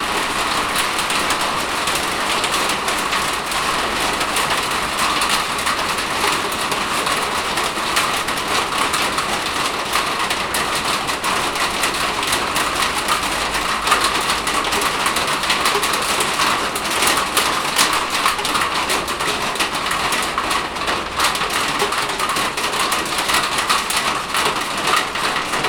Are the cars honking?
no